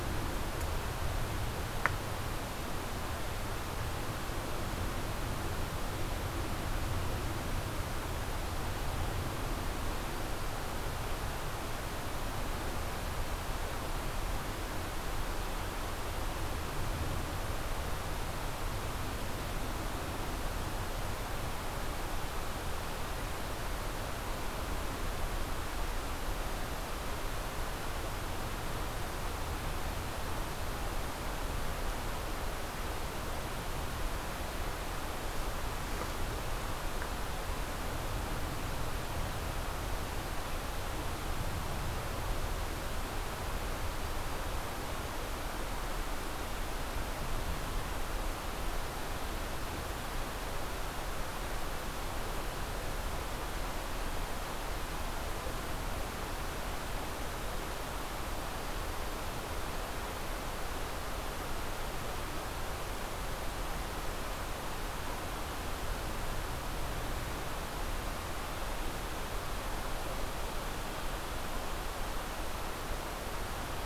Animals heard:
forest ambience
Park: Hubbard Brook Experimental Forest